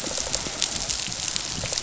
{"label": "biophony, rattle response", "recorder": "SoundTrap 500"}
{"label": "biophony, dolphin", "recorder": "SoundTrap 500"}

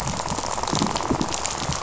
{"label": "biophony, rattle", "recorder": "SoundTrap 500"}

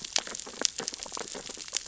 {"label": "biophony, sea urchins (Echinidae)", "recorder": "SoundTrap 600 or HydroMoth"}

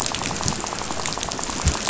{"label": "biophony, rattle", "recorder": "SoundTrap 500"}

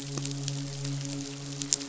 {"label": "biophony, midshipman", "recorder": "SoundTrap 500"}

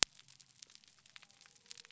{"label": "biophony", "recorder": "SoundTrap 300"}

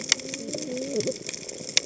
{"label": "biophony, cascading saw", "recorder": "HydroMoth"}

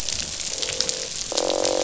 {"label": "biophony, croak", "recorder": "SoundTrap 500"}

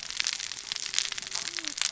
{"label": "biophony, cascading saw", "recorder": "SoundTrap 600 or HydroMoth"}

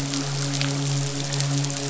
{"label": "biophony, midshipman", "recorder": "SoundTrap 500"}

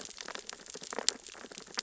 {"label": "biophony, sea urchins (Echinidae)", "recorder": "SoundTrap 600 or HydroMoth"}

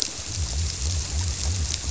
{"label": "biophony", "recorder": "SoundTrap 300"}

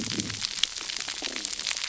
{"label": "biophony", "recorder": "SoundTrap 300"}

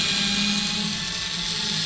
{"label": "anthrophony, boat engine", "recorder": "SoundTrap 500"}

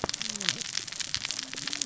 {"label": "biophony, cascading saw", "recorder": "SoundTrap 600 or HydroMoth"}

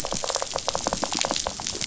{"label": "biophony", "recorder": "SoundTrap 500"}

